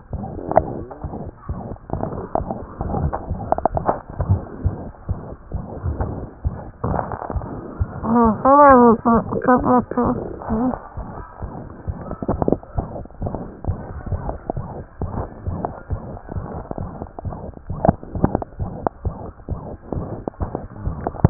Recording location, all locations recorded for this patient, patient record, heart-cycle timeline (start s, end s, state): mitral valve (MV)
pulmonary valve (PV)+tricuspid valve (TV)+mitral valve (MV)
#Age: Child
#Sex: Male
#Height: 100.0 cm
#Weight: 16.7 kg
#Pregnancy status: False
#Murmur: Present
#Murmur locations: mitral valve (MV)+pulmonary valve (PV)+tricuspid valve (TV)
#Most audible location: mitral valve (MV)
#Systolic murmur timing: Holosystolic
#Systolic murmur shape: Plateau
#Systolic murmur grading: I/VI
#Systolic murmur pitch: Medium
#Systolic murmur quality: Blowing
#Diastolic murmur timing: nan
#Diastolic murmur shape: nan
#Diastolic murmur grading: nan
#Diastolic murmur pitch: nan
#Diastolic murmur quality: nan
#Outcome: Abnormal
#Campaign: 2015 screening campaign
0.00	18.58	unannotated
18.58	18.68	S1
18.68	18.80	systole
18.80	18.89	S2
18.89	19.04	diastole
19.04	19.12	S1
19.12	19.26	systole
19.26	19.33	S2
19.33	19.49	diastole
19.49	19.56	S1
19.56	19.70	systole
19.70	19.78	S2
19.78	19.94	diastole
19.94	20.01	S1
20.01	20.15	systole
20.15	20.24	S2
20.24	20.39	diastole
20.39	20.46	S1
20.46	20.62	systole
20.62	20.68	S2
20.68	20.84	diastole
20.84	20.91	S1
20.91	21.30	unannotated